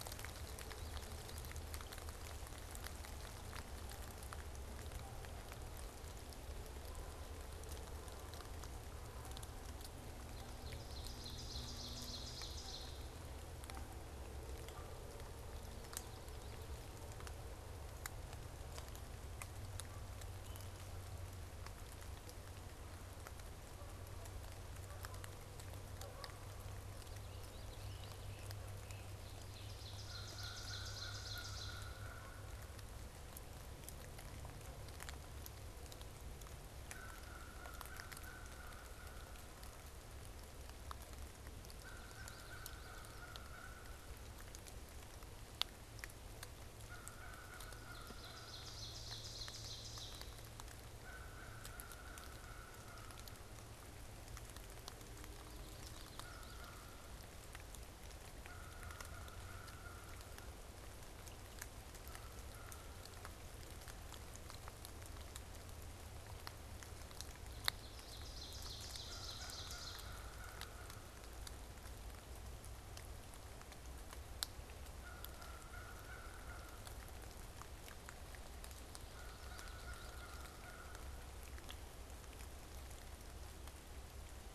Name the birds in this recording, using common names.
Ovenbird, American Crow, Common Yellowthroat